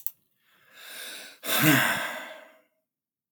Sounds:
Sigh